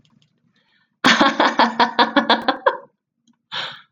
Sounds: Laughter